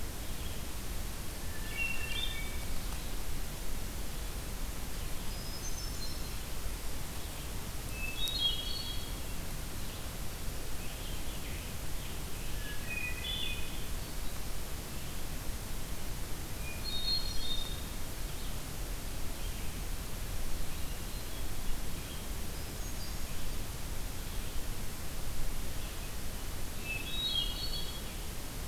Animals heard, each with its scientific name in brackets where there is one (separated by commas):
Scarlet Tanager (Piranga olivacea), Hermit Thrush (Catharus guttatus)